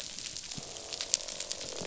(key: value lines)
label: biophony, croak
recorder: SoundTrap 500